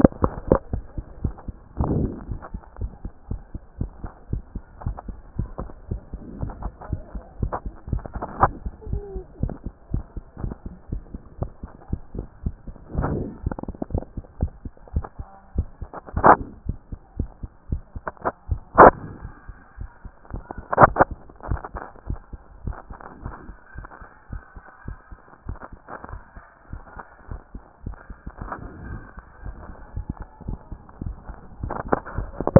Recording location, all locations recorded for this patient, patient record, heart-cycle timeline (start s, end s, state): mitral valve (MV)
aortic valve (AV)+pulmonary valve (PV)+tricuspid valve (TV)+mitral valve (MV)
#Age: Child
#Sex: Female
#Height: 142.0 cm
#Weight: 32.4 kg
#Pregnancy status: False
#Murmur: Absent
#Murmur locations: nan
#Most audible location: nan
#Systolic murmur timing: nan
#Systolic murmur shape: nan
#Systolic murmur grading: nan
#Systolic murmur pitch: nan
#Systolic murmur quality: nan
#Diastolic murmur timing: nan
#Diastolic murmur shape: nan
#Diastolic murmur grading: nan
#Diastolic murmur pitch: nan
#Diastolic murmur quality: nan
#Outcome: Abnormal
#Campaign: 2014 screening campaign
0.00	2.61	unannotated
2.61	2.80	diastole
2.80	2.92	S1
2.92	3.04	systole
3.04	3.12	S2
3.12	3.30	diastole
3.30	3.42	S1
3.42	3.54	systole
3.54	3.62	S2
3.62	3.78	diastole
3.78	3.90	S1
3.90	4.02	systole
4.02	4.10	S2
4.10	4.30	diastole
4.30	4.42	S1
4.42	4.54	systole
4.54	4.62	S2
4.62	4.84	diastole
4.84	4.96	S1
4.96	5.08	systole
5.08	5.16	S2
5.16	5.40	diastole
5.40	5.50	S1
5.50	5.60	systole
5.60	5.70	S2
5.70	5.90	diastole
5.90	6.02	S1
6.02	6.12	systole
6.12	6.20	S2
6.20	6.40	diastole
6.40	6.52	S1
6.52	6.62	systole
6.62	6.72	S2
6.72	6.90	diastole
6.90	7.02	S1
7.02	7.14	systole
7.14	7.22	S2
7.22	7.40	diastole
7.40	7.52	S1
7.52	7.64	systole
7.64	7.74	S2
7.74	7.90	diastole
7.90	8.02	S1
8.02	8.14	systole
8.14	8.24	S2
8.24	8.41	diastole
8.41	8.52	S1
8.52	8.64	systole
8.64	8.72	S2
8.72	8.90	diastole
8.90	9.02	S1
9.02	9.14	systole
9.14	9.24	S2
9.24	9.42	diastole
9.42	9.54	S1
9.54	9.64	systole
9.64	9.74	S2
9.74	9.92	diastole
9.92	10.04	S1
10.04	10.16	systole
10.16	10.24	S2
10.24	10.42	diastole
10.42	10.54	S1
10.54	10.64	systole
10.64	10.74	S2
10.74	10.90	diastole
10.90	11.02	S1
11.02	11.12	systole
11.12	11.22	S2
11.22	11.40	diastole
11.40	11.50	S1
11.50	11.62	systole
11.62	11.72	S2
11.72	11.91	diastole
11.91	12.01	S1
12.01	12.14	systole
12.14	12.26	S2
12.26	12.44	diastole
12.44	12.56	S1
12.56	12.66	systole
12.66	12.74	S2
12.74	12.96	diastole
12.96	32.59	unannotated